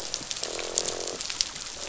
{"label": "biophony, croak", "recorder": "SoundTrap 500"}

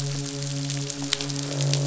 {"label": "biophony, midshipman", "recorder": "SoundTrap 500"}
{"label": "biophony, croak", "recorder": "SoundTrap 500"}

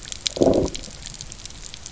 {"label": "biophony, low growl", "recorder": "SoundTrap 300"}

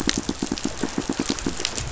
{"label": "biophony, pulse", "recorder": "SoundTrap 500"}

